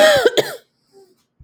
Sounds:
Throat clearing